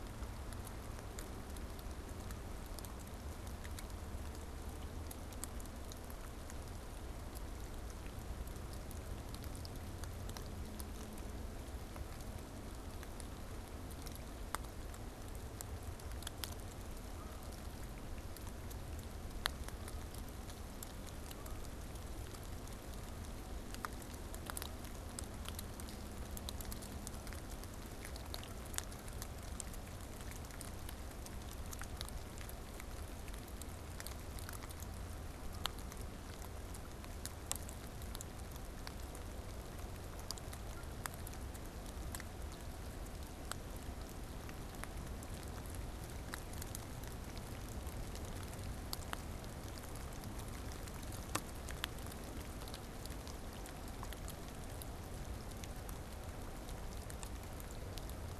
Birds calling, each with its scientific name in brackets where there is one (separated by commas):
Canada Goose (Branta canadensis)